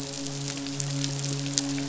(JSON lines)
{"label": "biophony, midshipman", "recorder": "SoundTrap 500"}